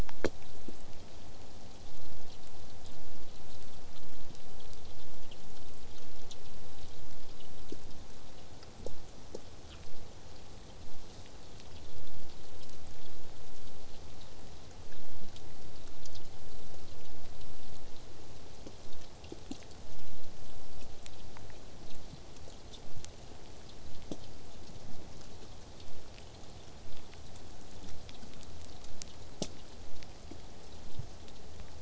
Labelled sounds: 26.8	31.8	vessel noise, 0 to 8.0 kHz

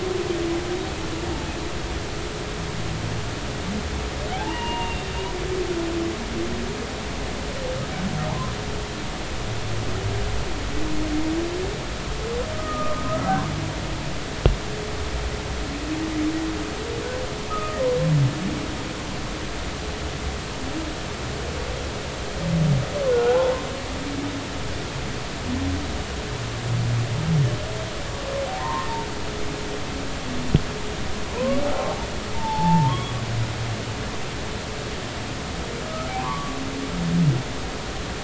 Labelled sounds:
4.3	5.1	humpback whale, 0.80 to 2.9 kHz
8.3	8.5	humpback whale, 0.80 to 1.1 kHz
12.5	13.3	humpback whale, 1.2 to 1.4 kHz
17.5	17.8	humpback whale, 1.2 to 1.3 kHz
23.1	23.6	humpback whale, 0.80 to 1.5 kHz
28.5	28.9	humpback whale, 0.80 to 2.0 kHz
32.3	33.1	humpback whale, 0.80 to 3.4 kHz
36.2	36.6	humpback whale, 0.86 to 1.2 kHz

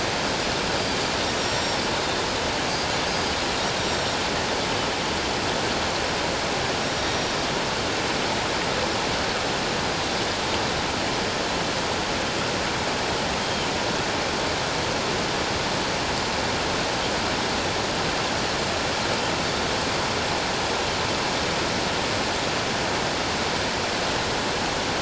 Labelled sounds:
1.4	1.8	Pacific white-sided dolphin, 5.4 to 7.5 kHz
3.1	3.3	Pacific white-sided dolphin, 4.7 to 4.9 kHz
3.8	4.2	Pacific white-sided dolphin, 5.4 to 7.6 kHz
6.8	7.3	Pacific white-sided dolphin, 5.5 to 5.7 kHz
13.4	13.7	Pacific white-sided dolphin, 3.0 to 3.3 kHz

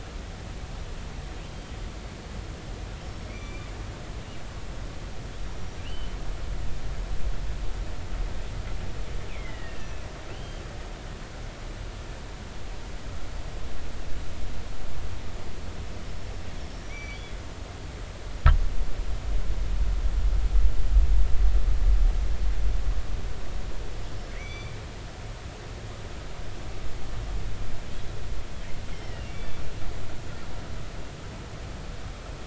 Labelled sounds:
3.0	3.7	killer whale, northern resident, G clan, GI subclan, call N23i, 2.1 to 5.6 kHz
5.5	6.2	killer whale, northern resident, G clan, GI subclan, call N23i, 2.6 to 5.8 kHz
9.3	10.1	killer whale, northern resident, G clan, 1.8 to 2.9 kHz
10.3	10.6	killer whale, northern resident, G clan, GI subclan, call N23i, 2.9 to 3.2 kHz
16.8	17.3	killer whale, northern resident, G clan, GI subclan, call N23i, 2.1 to 5.9 kHz
24.3	24.8	killer whale, northern resident, G clan, GI subclan, call N23i, 1.9 to 6.0 kHz
28.9	29.6	killer whale, northern resident, G clan, 1.9 to 3.6 kHz

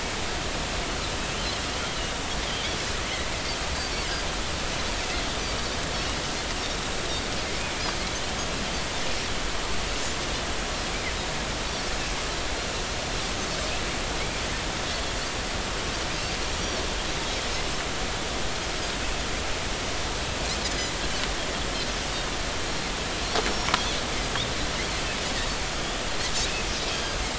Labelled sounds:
23.5	23.8	Pacific white-sided dolphin, 5.4 to 5.6 kHz

